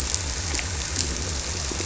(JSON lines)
{"label": "biophony", "recorder": "SoundTrap 300"}